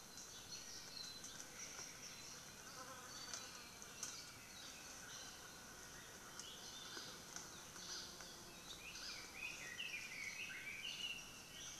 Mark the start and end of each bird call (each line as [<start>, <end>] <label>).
[0.76, 1.46] Apapane (Himatione sanguinea)
[8.76, 11.46] Red-billed Leiothrix (Leiothrix lutea)